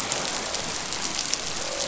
{"label": "biophony, croak", "recorder": "SoundTrap 500"}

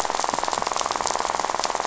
{"label": "biophony, rattle", "recorder": "SoundTrap 500"}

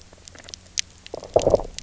{"label": "biophony, low growl", "recorder": "SoundTrap 300"}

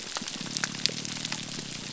{"label": "biophony", "recorder": "SoundTrap 300"}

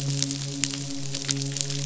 {"label": "biophony, midshipman", "recorder": "SoundTrap 500"}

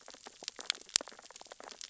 {"label": "biophony, sea urchins (Echinidae)", "recorder": "SoundTrap 600 or HydroMoth"}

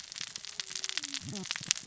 {"label": "biophony, cascading saw", "recorder": "SoundTrap 600 or HydroMoth"}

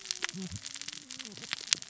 {"label": "biophony, cascading saw", "recorder": "SoundTrap 600 or HydroMoth"}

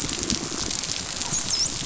{"label": "biophony, dolphin", "recorder": "SoundTrap 500"}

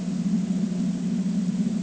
{"label": "ambient", "recorder": "HydroMoth"}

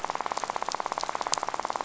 {"label": "biophony, rattle", "recorder": "SoundTrap 500"}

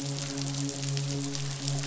{"label": "biophony, midshipman", "recorder": "SoundTrap 500"}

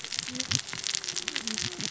{"label": "biophony, cascading saw", "recorder": "SoundTrap 600 or HydroMoth"}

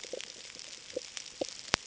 {"label": "ambient", "recorder": "HydroMoth"}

